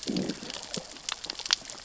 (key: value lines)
label: biophony, growl
recorder: SoundTrap 600 or HydroMoth